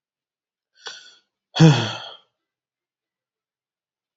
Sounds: Sigh